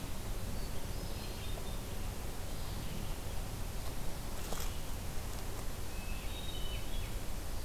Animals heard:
Hermit Thrush (Catharus guttatus)

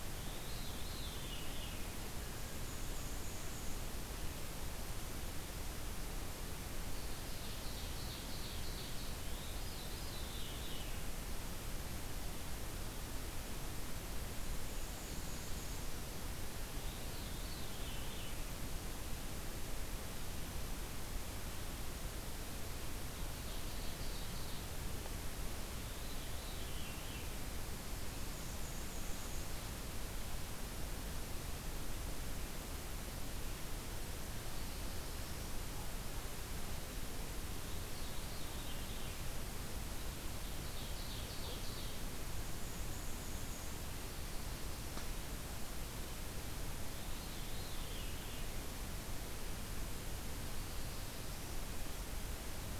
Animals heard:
Veery (Catharus fuscescens)
Black-and-white Warbler (Mniotilta varia)
Black-throated Blue Warbler (Setophaga caerulescens)
Ovenbird (Seiurus aurocapilla)

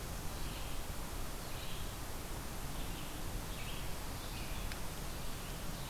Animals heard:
Red-eyed Vireo (Vireo olivaceus)

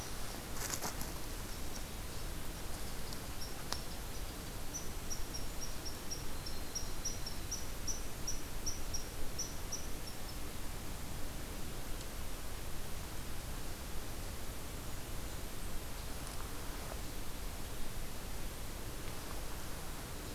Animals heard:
Red Squirrel (Tamiasciurus hudsonicus)

